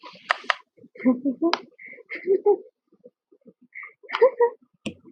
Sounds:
Laughter